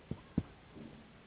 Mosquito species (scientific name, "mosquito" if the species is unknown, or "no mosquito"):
Anopheles gambiae s.s.